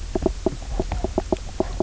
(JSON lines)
{"label": "biophony, knock croak", "recorder": "SoundTrap 300"}